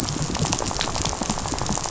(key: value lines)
label: biophony, rattle
recorder: SoundTrap 500